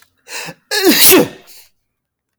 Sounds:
Sneeze